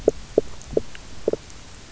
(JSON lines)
{"label": "biophony, knock", "recorder": "SoundTrap 300"}